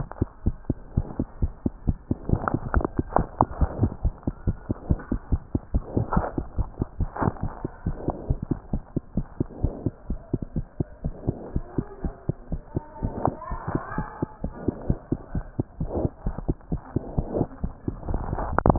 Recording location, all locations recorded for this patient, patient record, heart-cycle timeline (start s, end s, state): tricuspid valve (TV)
aortic valve (AV)+pulmonary valve (PV)+tricuspid valve (TV)+mitral valve (MV)
#Age: Infant
#Sex: Female
#Height: 97.0 cm
#Weight: 7.1 kg
#Pregnancy status: False
#Murmur: Absent
#Murmur locations: nan
#Most audible location: nan
#Systolic murmur timing: nan
#Systolic murmur shape: nan
#Systolic murmur grading: nan
#Systolic murmur pitch: nan
#Systolic murmur quality: nan
#Diastolic murmur timing: nan
#Diastolic murmur shape: nan
#Diastolic murmur grading: nan
#Diastolic murmur pitch: nan
#Diastolic murmur quality: nan
#Outcome: Normal
#Campaign: 2015 screening campaign
0.00	8.58	unannotated
8.58	8.72	diastole
8.72	8.82	S1
8.82	8.96	systole
8.96	9.04	S2
9.04	9.16	diastole
9.16	9.26	S1
9.26	9.38	systole
9.38	9.46	S2
9.46	9.62	diastole
9.62	9.74	S1
9.74	9.85	systole
9.85	9.93	S2
9.93	10.07	diastole
10.07	10.20	S1
10.20	10.31	systole
10.31	10.42	S2
10.42	10.55	diastole
10.55	10.66	S1
10.66	10.77	systole
10.77	10.86	S2
10.86	11.02	diastole
11.02	11.14	S1
11.14	11.26	systole
11.26	11.34	S2
11.34	11.52	diastole
11.52	11.64	S1
11.64	11.75	systole
11.75	11.86	S2
11.86	12.02	diastole
12.02	12.14	S1
12.14	12.28	systole
12.28	12.36	S2
12.36	12.49	diastole
12.49	12.62	S1
12.62	12.73	systole
12.73	12.84	S2
12.84	13.01	diastole
13.01	13.14	S1
13.14	13.25	systole
13.25	13.36	S2
13.36	13.49	diastole
13.49	13.60	S1
13.60	13.73	systole
13.73	13.79	S2
13.79	13.97	diastole
13.97	14.03	S1
14.03	14.20	systole
14.20	14.28	S2
14.28	14.43	diastole
14.43	14.50	S1
14.50	14.65	systole
14.65	14.72	S2
14.72	14.88	diastole
14.88	14.95	S1
14.95	15.09	systole
15.09	15.17	S2
15.17	15.32	diastole
15.32	15.43	S1
15.43	15.57	systole
15.57	15.64	S2
15.64	15.80	diastole
15.80	18.78	unannotated